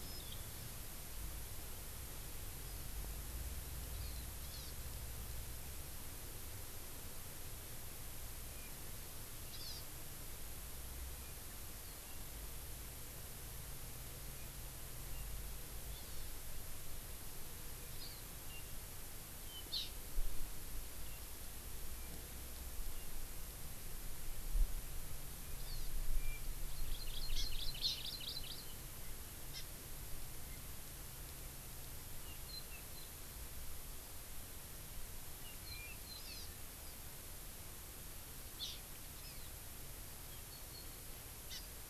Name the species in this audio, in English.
Hawaii Amakihi